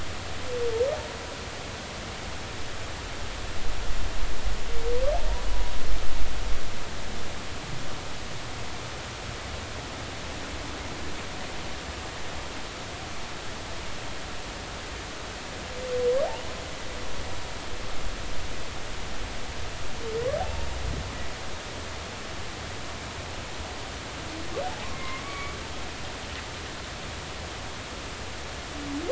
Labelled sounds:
20.4	20.7	humpback whale, 0.80 to 0.96 kHz
24.9	25.6	humpback whale, 0.99 to 2.3 kHz

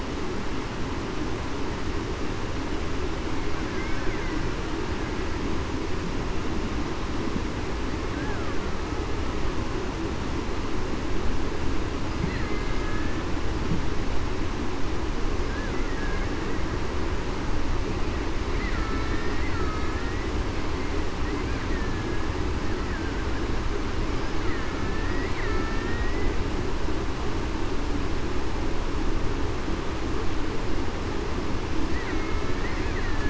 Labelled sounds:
12.4	13.3	killer whale, Bigg's (transient), 1.6 to 2.1 kHz
18.7	20.3	killer whale, Bigg's (transient), 1.2 to 2.0 kHz
21.7	22.3	killer whale, Bigg's (transient), 1.6 to 1.9 kHz
24.8	25.3	killer whale, Bigg's (transient), 1.7 to 2.0 kHz
32.1	32.6	killer whale, Bigg's (transient), 2.1 to 2.3 kHz

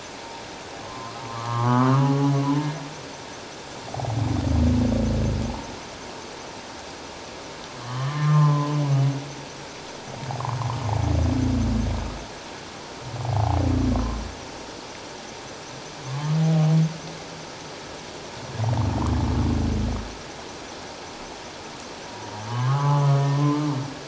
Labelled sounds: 0.8	1.9	humpback whale, 0.94 to 1.4 kHz
7.8	8.8	humpback whale, 0.88 to 3.2 kHz
13.2	14.2	humpback whale, 0.78 to 1.1 kHz
16.0	16.7	humpback whale, 0.78 to 1.3 kHz
22.4	23.1	humpback whale, 0.94 to 1.3 kHz
23.3	23.6	humpback whale, 0.97 to 1.1 kHz

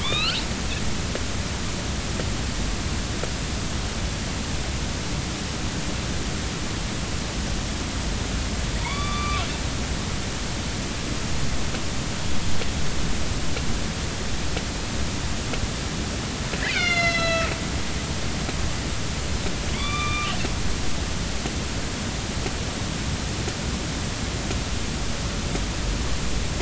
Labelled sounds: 0.0	0.4	killer whale, northern resident, A clan, AB subclan, B01 pod, call N16, 0.93 to 4.6 kHz
8.8	9.4	killer whale, northern resident, A clan, AB subclan, call N05, 0.86 to 4.7 kHz
16.7	17.6	killer whale, northern resident, A clan, AB subclan, B01 pod, call N01ii, 1.2 to 6.9 kHz
19.7	20.3	killer whale, northern resident, A clan, AB subclan, call N05ii, 1.1 to 4.8 kHz

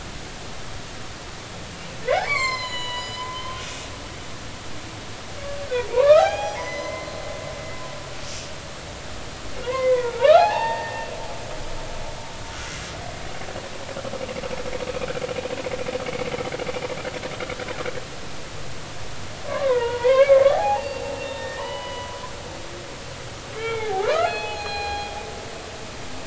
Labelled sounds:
2.1	3.9	humpback whale, 0.93 to 7.5 kHz
5.9	7.1	humpback whale, 0.80 to 6.2 kHz
9.6	11.1	humpback whale, 0.80 to 4.6 kHz
19.5	22.5	humpback whale, 0.80 to 4.7 kHz
23.5	25.2	humpback whale, 0.80 to 4.3 kHz

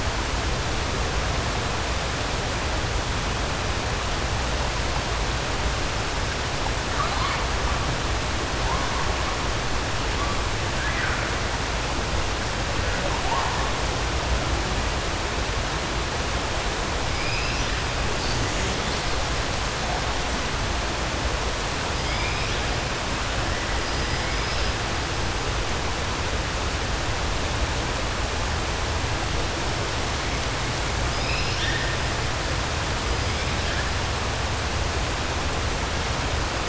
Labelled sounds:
17.1	17.7	killer whale, 2.2 to 3.5 kHz
31.1	32.0	killer whale, 1.6 to 5.7 kHz

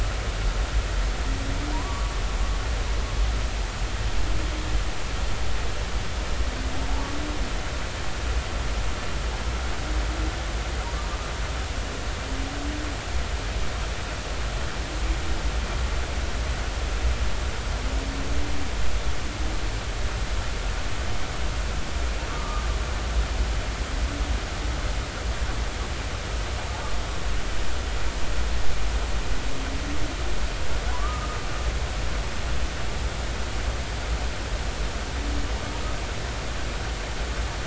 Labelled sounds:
1.7	2.1	humpback whale, 0.90 to 1.2 kHz
22.3	22.6	humpback whale, 1.1 to 1.3 kHz
30.9	31.4	humpback whale, 0.93 to 1.3 kHz

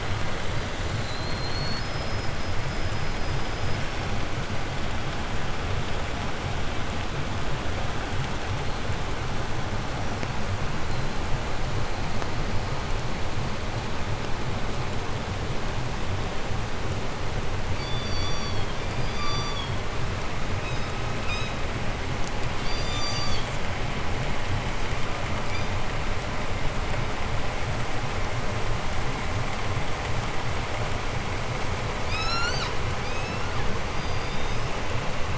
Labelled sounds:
0.0	4.1	killer whale, 3.5 to 8.0 kHz
10.8	11.3	killer whale, 3.9 to 4.5 kHz
11.8	12.2	killer whale, 3.8 to 8.0 kHz
17.6	18.8	killer whale, southern resident, 0.70 to 8.0 kHz
19.0	19.8	killer whale, southern resident, 0.87 to 7.5 kHz
20.6	20.9	killer whale, 0.87 to 7.5 kHz
21.2	21.6	killer whale, 0.94 to 7.8 kHz
22.5	23.7	killer whale, southern resident, 0.59 to 8.0 kHz
25.4	25.8	killer whale, 1.0 to 7.5 kHz
32.0	33.7	killer whale, southern resident, 0.47 to 8.0 kHz
33.8	34.8	killer whale, 2.9 to 6.8 kHz

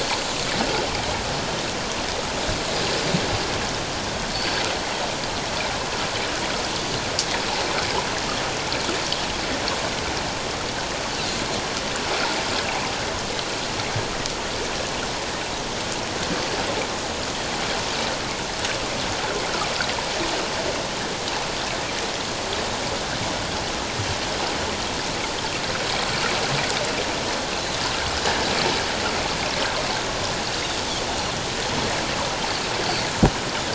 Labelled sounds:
4.3	4.6	Pacific white-sided dolphin, 4.4 to 4.5 kHz

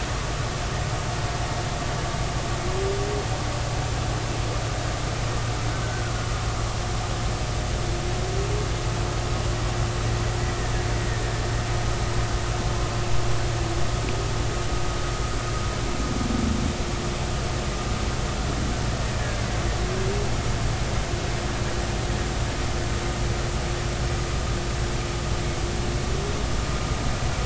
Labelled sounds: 10.9	11.3	killer whale, Bigg's (transient), 1.7 to 2.0 kHz

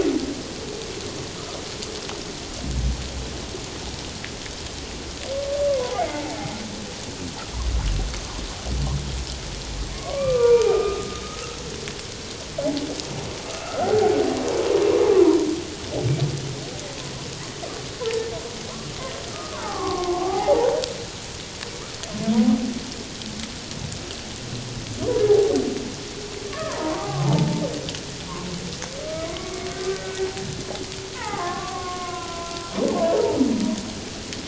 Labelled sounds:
5.7	6.4	humpback whale, 0.78 to 1.2 kHz
9.9	11.6	humpback whale, 0.88 to 2.4 kHz
13.5	14.1	humpback whale, 0.78 to 1.5 kHz
18.7	19.0	humpback whale, 0.97 to 1.2 kHz
19.3	20.8	humpback whale, 0.78 to 1.6 kHz
26.5	27.7	humpback whale, 0.78 to 1.3 kHz
29.2	30.2	humpback whale, 0.97 to 1.6 kHz
31.2	32.5	humpback whale, 0.78 to 1.5 kHz
33.0	33.4	humpback whale, 0.84 to 1.0 kHz

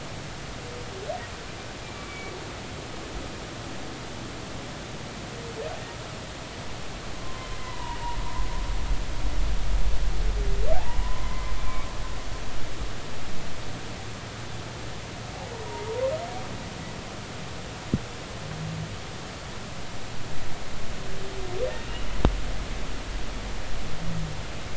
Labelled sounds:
1.8	2.3	humpback whale, 2.2 to 2.4 kHz
7.2	8.0	humpback whale, 0.86 to 2.1 kHz
10.7	11.9	humpback whale, 0.80 to 2.4 kHz

